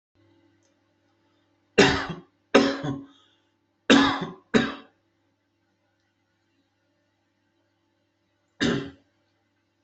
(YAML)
expert_labels:
- quality: ok
  cough_type: unknown
  dyspnea: false
  wheezing: false
  stridor: false
  choking: false
  congestion: false
  nothing: true
  diagnosis: healthy cough
  severity: pseudocough/healthy cough
age: 47
gender: male
respiratory_condition: false
fever_muscle_pain: false
status: COVID-19